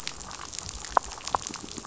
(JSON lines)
{"label": "biophony", "recorder": "SoundTrap 500"}